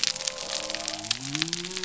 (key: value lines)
label: biophony
recorder: SoundTrap 300